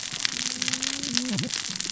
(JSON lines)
{"label": "biophony, cascading saw", "recorder": "SoundTrap 600 or HydroMoth"}